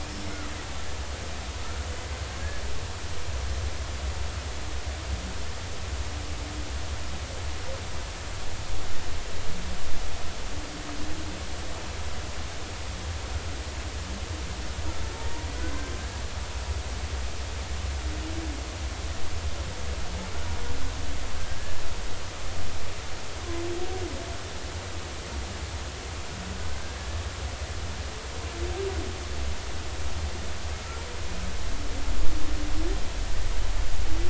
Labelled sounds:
0.0	0.4	killer whale, Bigg's (transient), 5.2 to 5.5 kHz

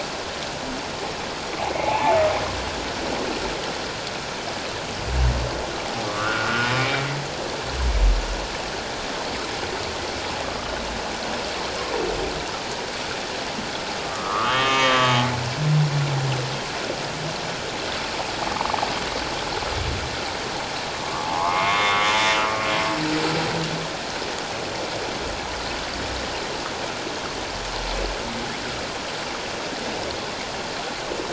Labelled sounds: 1.8	2.2	humpback whale, 0.78 to 1.1 kHz
6.0	7.1	humpback whale, 1.0 to 2.4 kHz
10.4	10.7	humpback whale, 1.1 to 1.3 kHz
14.0	15.3	humpback whale, 0.97 to 3.3 kHz
21.0	22.1	humpback whale, 0.78 to 3.7 kHz

